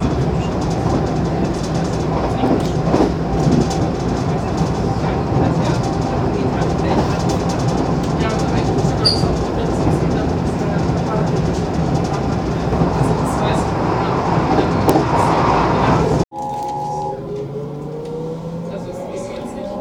How many people are chattering?
two